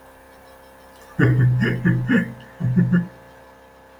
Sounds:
Laughter